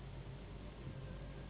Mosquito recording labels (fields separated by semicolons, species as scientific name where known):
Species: Anopheles gambiae s.s.; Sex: female; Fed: unfed; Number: one; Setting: insect culture